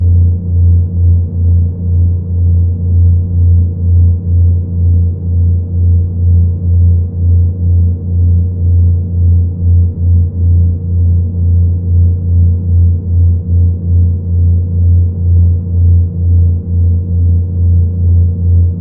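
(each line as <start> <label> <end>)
0.0 Engine operating rhythmically. 18.8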